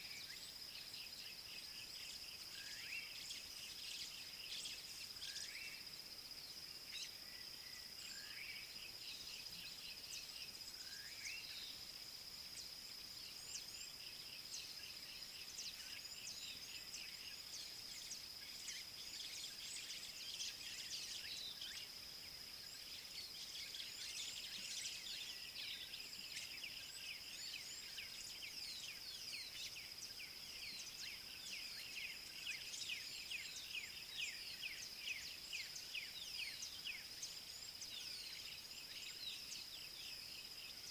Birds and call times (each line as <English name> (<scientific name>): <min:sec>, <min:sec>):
Yellow-breasted Apalis (Apalis flavida): 0:01.2, 0:15.1
White-browed Sparrow-Weaver (Plocepasser mahali): 0:06.9